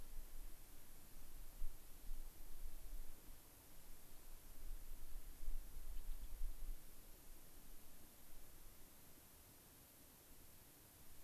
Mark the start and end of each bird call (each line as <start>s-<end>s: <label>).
5.9s-6.3s: Gray-crowned Rosy-Finch (Leucosticte tephrocotis)